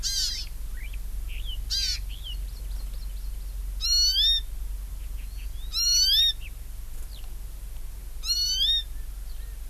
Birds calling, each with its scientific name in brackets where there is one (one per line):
Hawaii Amakihi (Chlorodrepanis virens)
Erckel's Francolin (Pternistis erckelii)
Eurasian Skylark (Alauda arvensis)